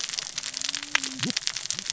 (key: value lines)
label: biophony, cascading saw
recorder: SoundTrap 600 or HydroMoth